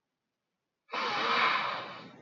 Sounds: Sniff